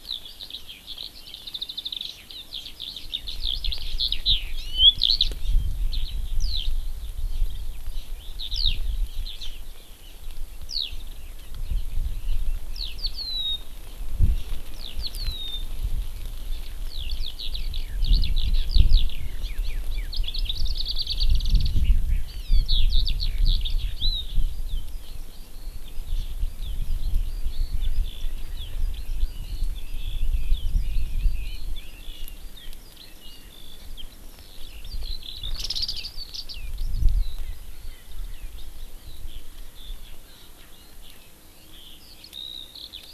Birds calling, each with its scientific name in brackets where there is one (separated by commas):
Red-billed Leiothrix (Leiothrix lutea), Hawaii Amakihi (Chlorodrepanis virens), Eurasian Skylark (Alauda arvensis), Erckel's Francolin (Pternistis erckelii)